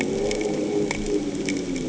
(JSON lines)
{"label": "anthrophony, boat engine", "recorder": "HydroMoth"}